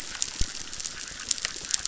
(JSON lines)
{"label": "biophony, chorus", "recorder": "SoundTrap 600"}